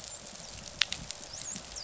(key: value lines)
label: biophony, dolphin
recorder: SoundTrap 500